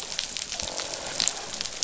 {"label": "biophony, croak", "recorder": "SoundTrap 500"}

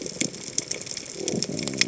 {"label": "biophony", "recorder": "HydroMoth"}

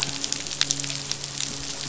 {"label": "biophony, midshipman", "recorder": "SoundTrap 500"}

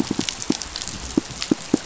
{"label": "biophony, pulse", "recorder": "SoundTrap 500"}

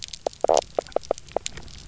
{"label": "biophony, knock croak", "recorder": "SoundTrap 300"}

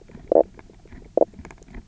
{"label": "biophony, knock croak", "recorder": "SoundTrap 300"}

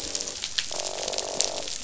{"label": "biophony, croak", "recorder": "SoundTrap 500"}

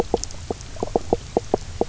{"label": "biophony, knock croak", "recorder": "SoundTrap 300"}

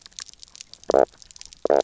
{"label": "biophony, knock croak", "recorder": "SoundTrap 300"}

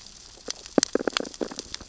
{"label": "biophony, sea urchins (Echinidae)", "recorder": "SoundTrap 600 or HydroMoth"}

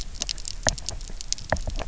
{"label": "biophony, knock", "recorder": "SoundTrap 300"}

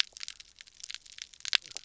{"label": "biophony, knock croak", "recorder": "SoundTrap 300"}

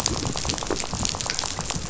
{"label": "biophony, rattle", "recorder": "SoundTrap 500"}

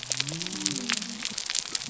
{"label": "biophony", "recorder": "SoundTrap 300"}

